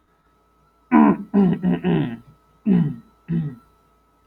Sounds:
Throat clearing